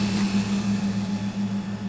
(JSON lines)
{"label": "anthrophony, boat engine", "recorder": "SoundTrap 500"}